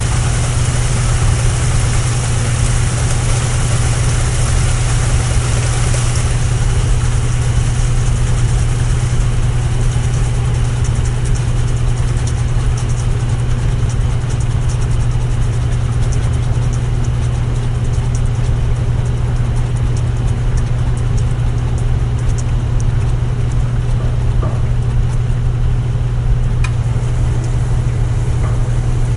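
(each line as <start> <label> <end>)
0.0 A washing machine operates loudly. 6.3
6.3 Washing machine operating quietly with an oscillating spinning sound. 29.2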